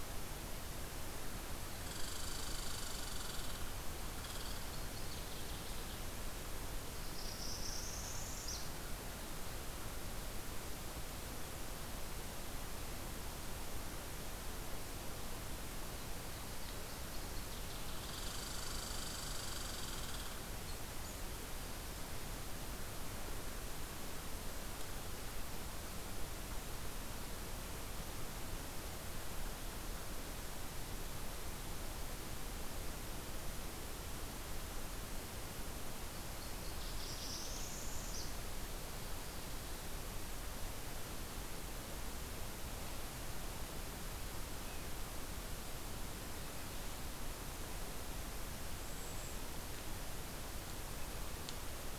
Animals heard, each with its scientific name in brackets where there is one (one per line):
Northern Waterthrush (Parkesia noveboracensis)
Red Squirrel (Tamiasciurus hudsonicus)
Northern Parula (Setophaga americana)